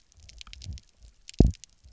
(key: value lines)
label: biophony, double pulse
recorder: SoundTrap 300